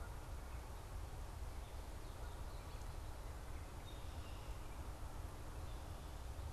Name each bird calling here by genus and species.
Agelaius phoeniceus